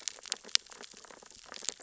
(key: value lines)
label: biophony, sea urchins (Echinidae)
recorder: SoundTrap 600 or HydroMoth